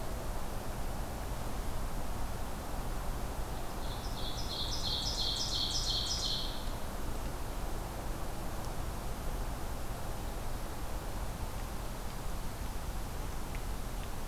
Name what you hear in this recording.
Ovenbird